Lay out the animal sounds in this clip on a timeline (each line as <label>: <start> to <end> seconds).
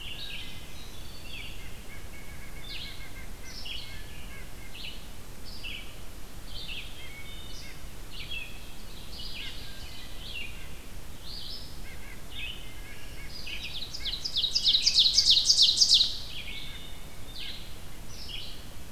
Red-eyed Vireo (Vireo olivaceus): 0.0 to 8.5 seconds
Wood Thrush (Hylocichla mustelina): 0.2 to 0.8 seconds
Black-throated Green Warbler (Setophaga virens): 0.2 to 1.8 seconds
White-breasted Nuthatch (Sitta carolinensis): 1.6 to 4.8 seconds
Wood Thrush (Hylocichla mustelina): 7.0 to 7.7 seconds
Ovenbird (Seiurus aurocapilla): 8.5 to 10.1 seconds
Red-eyed Vireo (Vireo olivaceus): 8.9 to 18.9 seconds
White-breasted Nuthatch (Sitta carolinensis): 9.3 to 10.7 seconds
Wood Thrush (Hylocichla mustelina): 9.6 to 10.2 seconds
White-breasted Nuthatch (Sitta carolinensis): 11.7 to 17.6 seconds
Black-throated Green Warbler (Setophaga virens): 12.9 to 14.2 seconds
Ovenbird (Seiurus aurocapilla): 13.6 to 16.4 seconds
Wood Thrush (Hylocichla mustelina): 16.4 to 17.1 seconds